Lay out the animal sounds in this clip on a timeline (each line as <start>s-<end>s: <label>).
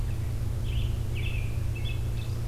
0.5s-2.5s: American Robin (Turdus migratorius)